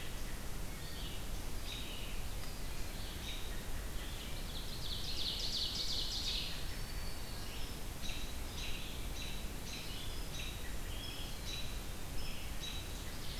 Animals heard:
Ovenbird (Seiurus aurocapilla), Black-throated Green Warbler (Setophaga virens), American Robin (Turdus migratorius), Red-eyed Vireo (Vireo olivaceus)

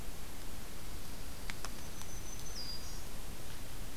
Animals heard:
Black-throated Green Warbler (Setophaga virens), Dark-eyed Junco (Junco hyemalis)

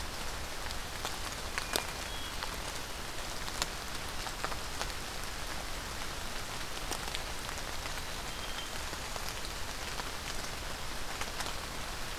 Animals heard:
Hermit Thrush (Catharus guttatus)

